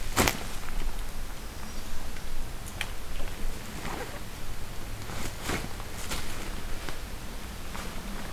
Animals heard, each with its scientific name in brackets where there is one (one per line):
American Redstart (Setophaga ruticilla)